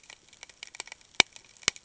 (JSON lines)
{"label": "ambient", "recorder": "HydroMoth"}